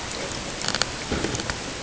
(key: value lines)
label: ambient
recorder: HydroMoth